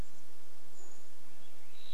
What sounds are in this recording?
Brown Creeper call, Swainson's Thrush song, Varied Thrush song, dog bark